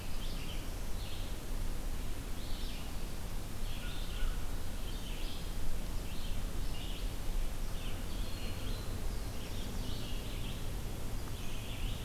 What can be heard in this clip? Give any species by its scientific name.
Vireo olivaceus, Corvus brachyrhynchos